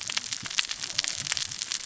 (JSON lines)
{"label": "biophony, cascading saw", "recorder": "SoundTrap 600 or HydroMoth"}